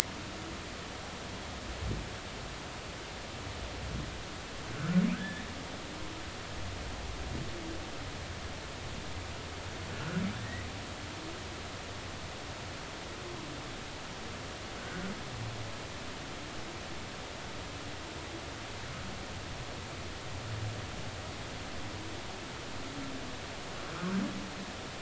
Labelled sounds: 5.1	5.5	humpback whale, 1.5 to 1.9 kHz
14.8	15.1	humpback whale, 1.4 to 1.7 kHz

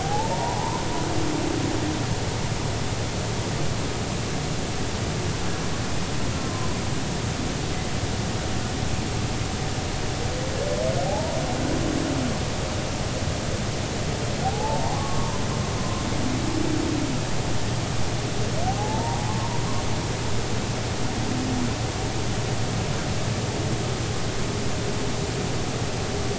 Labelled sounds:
0.0	0.8	humpback whale, 0.80 to 1.1 kHz
7.4	7.7	humpback whale, 0.96 to 1.1 kHz
11.0	11.4	humpback whale, 0.80 to 1.0 kHz
14.4	15.4	humpback whale, 0.80 to 1.2 kHz
15.8	16.0	humpback whale, 0.99 to 1.1 kHz
18.8	19.2	humpback whale, 0.80 to 0.99 kHz
20.4	20.6	humpback whale, 0.90 to 1.1 kHz

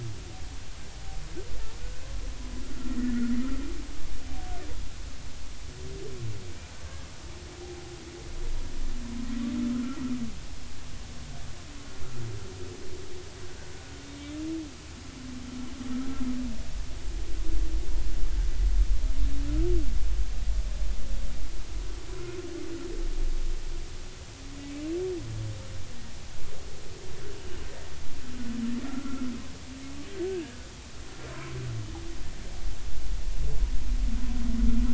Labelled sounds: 1.8	3.4	humpback whale, 1.3 to 2.0 kHz
9.7	10.0	humpback whale, 1.2 to 1.5 kHz
14.1	14.3	humpback whale, 2.2 to 2.4 kHz
28.9	29.2	humpback whale, 1.3 to 1.4 kHz
30.2	30.6	humpback whale, 1.5 to 1.7 kHz

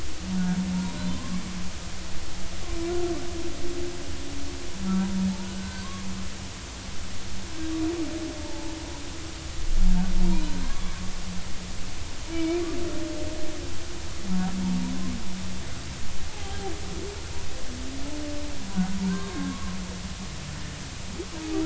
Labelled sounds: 1.1	1.4	humpback whale, 0.93 to 1.2 kHz
5.4	5.9	humpback whale, 1.4 to 1.6 kHz
8.4	8.7	humpback whale, 0.83 to 0.96 kHz
10.3	10.9	humpback whale, 1.0 to 4.1 kHz
12.3	12.6	humpback whale, 2.2 to 2.5 kHz
16.3	16.7	humpback whale, 0.80 to 3.3 kHz
19.0	19.7	humpback whale, 0.90 to 3.8 kHz

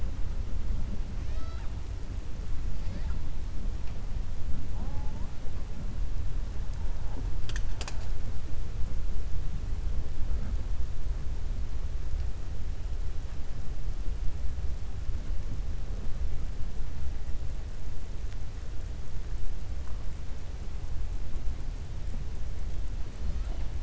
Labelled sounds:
1.2	1.7	killer whale, 0.63 to 6.0 kHz

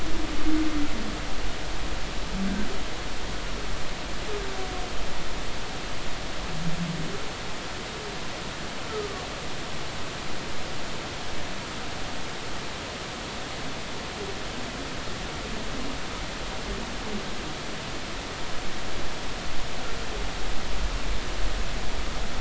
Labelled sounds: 8.9	9.3	humpback whale, 1.1 to 1.4 kHz

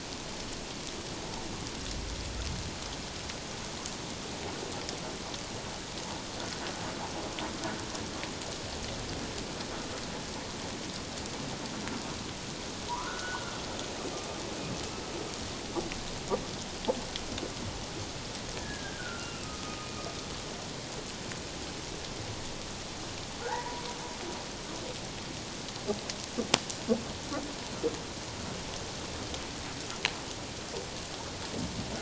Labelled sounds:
12.9	13.5	humpback whale, 0.88 to 1.6 kHz
18.6	19.9	humpback whale, 1.2 to 1.9 kHz
23.4	23.8	humpback whale, 0.78 to 2.0 kHz

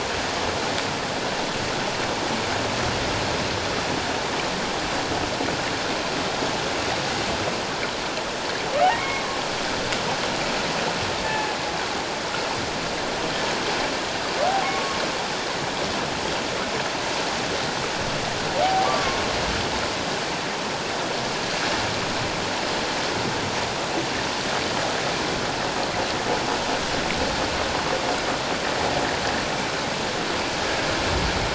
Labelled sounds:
9.0	9.2	humpback whale, 2.1 to 2.3 kHz
11.2	11.6	humpback whale, 0.78 to 0.94 kHz
14.6	15.0	humpback whale, 1.0 to 1.2 kHz
18.9	19.2	humpback whale, 1.0 to 1.2 kHz

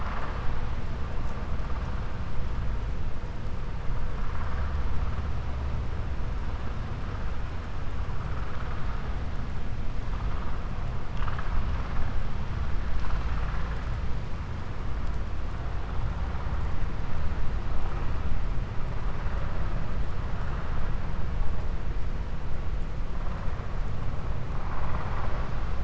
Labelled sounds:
24.6	25.5	vessel noise, 0.59 to 3.6 kHz

